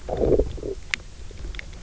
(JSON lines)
{"label": "biophony, low growl", "recorder": "SoundTrap 300"}